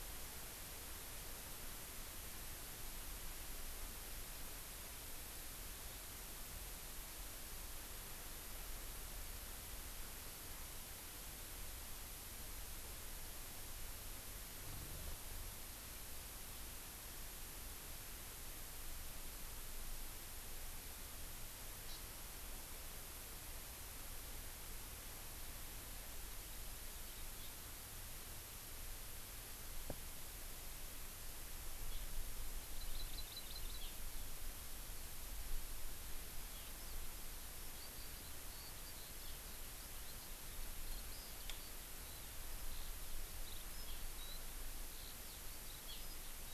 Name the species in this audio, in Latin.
Chlorodrepanis virens, Alauda arvensis